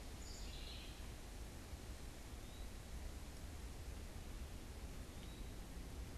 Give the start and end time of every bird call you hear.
[0.00, 1.30] House Wren (Troglodytes aedon)
[2.20, 6.17] Eastern Wood-Pewee (Contopus virens)

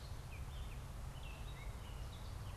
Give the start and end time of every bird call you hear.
[0.00, 2.56] Gray Catbird (Dumetella carolinensis)

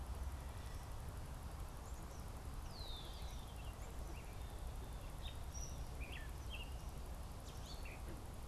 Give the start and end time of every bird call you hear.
[2.51, 3.71] Red-winged Blackbird (Agelaius phoeniceus)
[4.91, 8.41] Gray Catbird (Dumetella carolinensis)

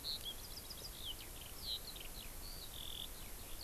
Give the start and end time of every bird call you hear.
[0.00, 3.63] Eurasian Skylark (Alauda arvensis)

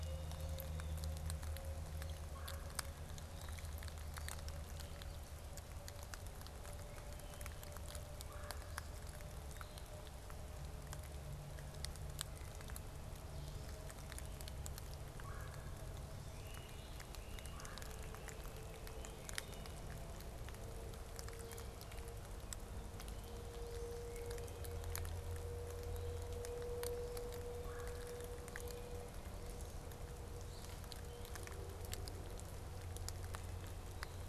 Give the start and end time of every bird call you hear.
[0.00, 10.32] Wood Duck (Aix sponsa)
[2.22, 2.92] Red-bellied Woodpecker (Melanerpes carolinus)
[8.22, 8.82] Red-bellied Woodpecker (Melanerpes carolinus)
[15.12, 15.82] Red-bellied Woodpecker (Melanerpes carolinus)
[16.22, 19.12] Great Crested Flycatcher (Myiarchus crinitus)
[17.52, 17.92] Red-bellied Woodpecker (Melanerpes carolinus)
[18.92, 19.82] Wood Thrush (Hylocichla mustelina)
[27.62, 28.12] Red-bellied Woodpecker (Melanerpes carolinus)

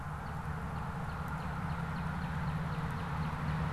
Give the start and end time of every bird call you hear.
[0.00, 3.72] Northern Cardinal (Cardinalis cardinalis)

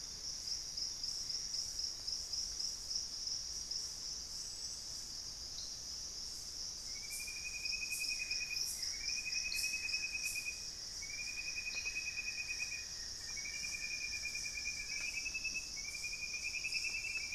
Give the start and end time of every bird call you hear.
[0.00, 2.30] Gray Antbird (Cercomacra cinerascens)
[7.90, 15.20] Buff-throated Woodcreeper (Xiphorhynchus guttatus)

